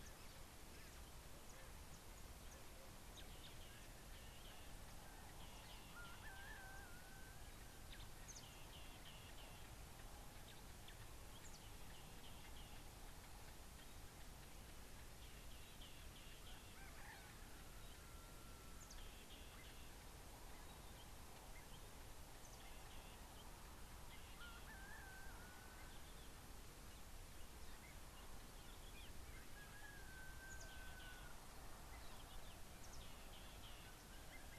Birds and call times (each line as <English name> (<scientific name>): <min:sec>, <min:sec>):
Somali Tit (Melaniparus thruppi): 0:08.8, 0:15.9, 0:22.5